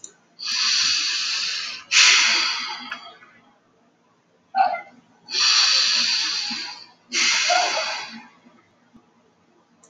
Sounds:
Sigh